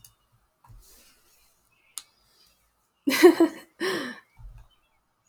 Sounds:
Laughter